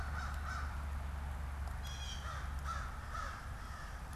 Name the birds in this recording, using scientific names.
Corvus brachyrhynchos, Cyanocitta cristata